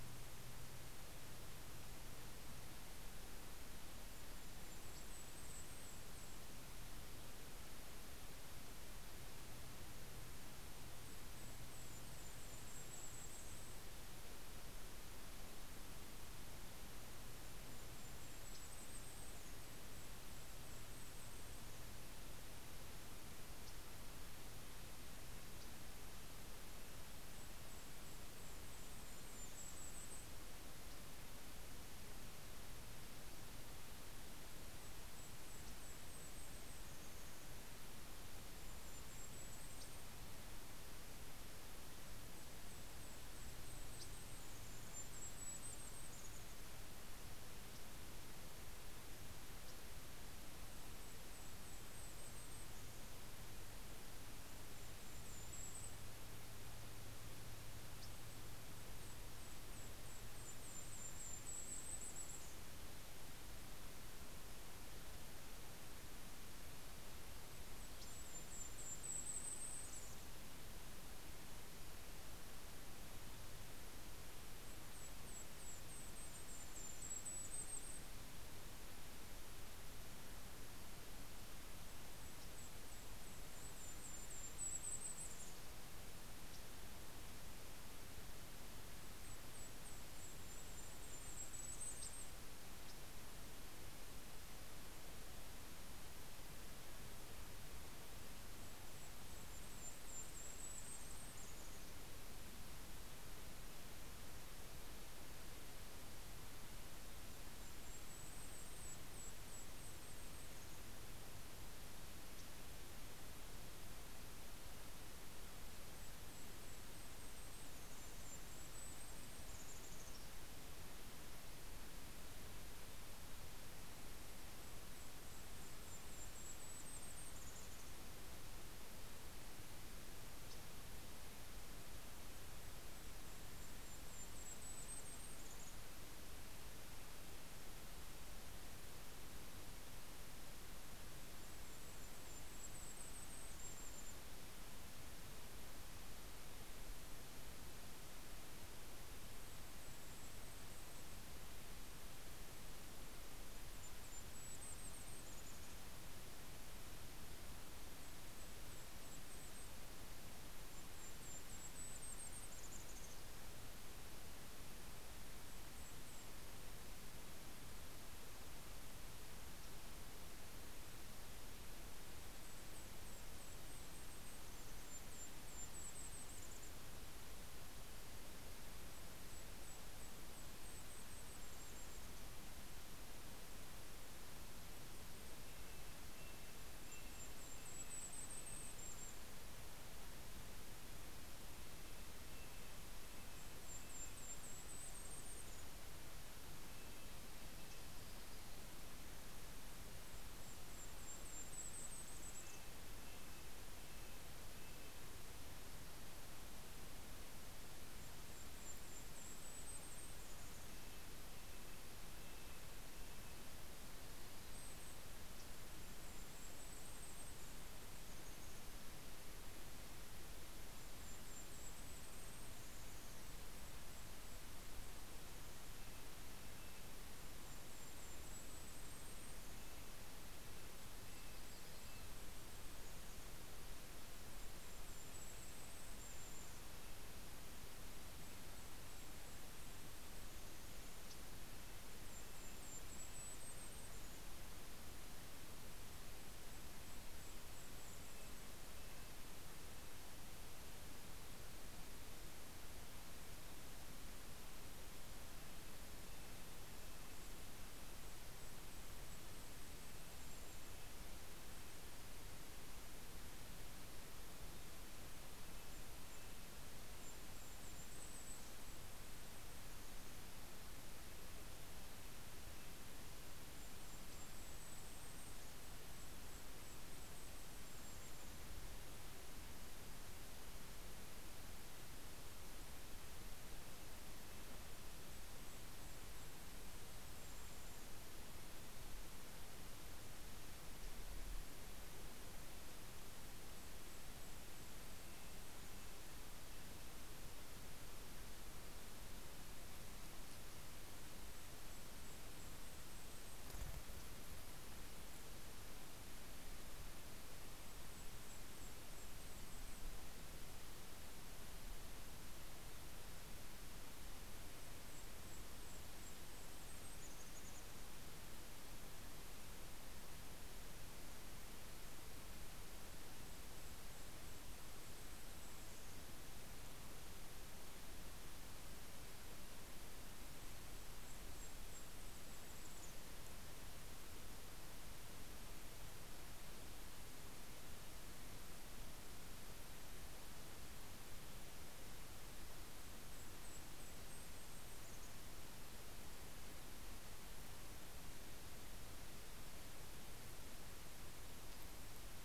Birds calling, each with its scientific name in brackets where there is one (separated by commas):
Red-breasted Nuthatch (Sitta canadensis), Yellow-rumped Warbler (Setophaga coronata), Golden-crowned Kinglet (Regulus satrapa)